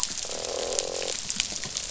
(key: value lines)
label: biophony, croak
recorder: SoundTrap 500